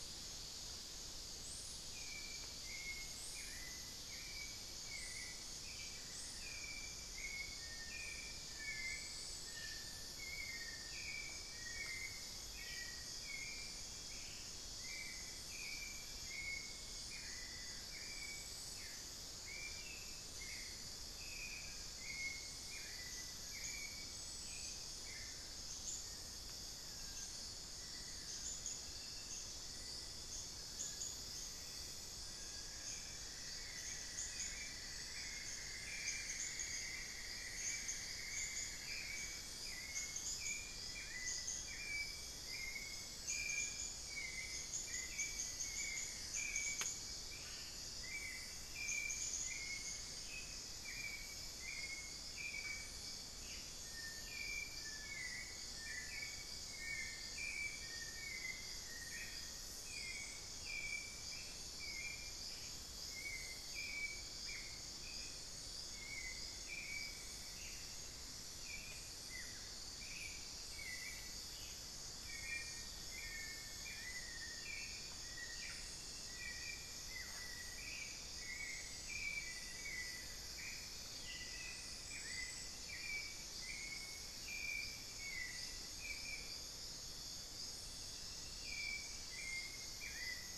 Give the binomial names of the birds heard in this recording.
Turdus hauxwelli, unidentified bird, Dendrocolaptes certhia, Crypturellus bartletti, Crypturellus soui, Dendrexetastes rufigula, Conopophaga peruviana, Xiphorhynchus guttatus, Corythopis torquatus